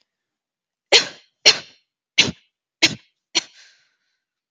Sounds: Cough